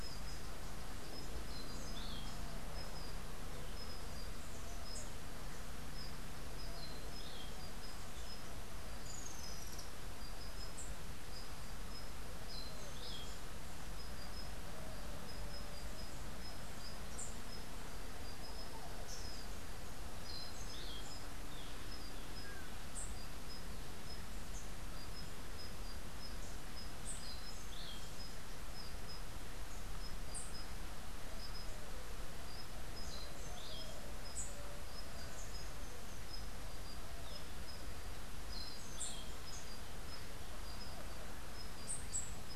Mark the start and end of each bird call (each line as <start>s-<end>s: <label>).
8.8s-10.0s: Rufous-tailed Hummingbird (Amazilia tzacatl)